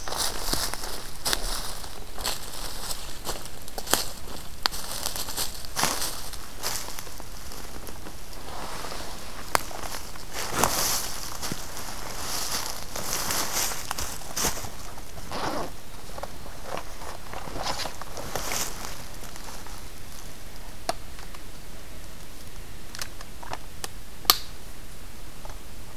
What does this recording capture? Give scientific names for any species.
forest ambience